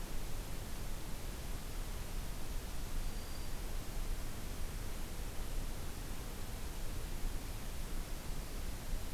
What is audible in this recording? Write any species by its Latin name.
Setophaga virens